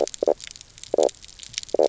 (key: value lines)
label: biophony, knock croak
recorder: SoundTrap 300